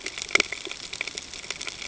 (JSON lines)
{"label": "ambient", "recorder": "HydroMoth"}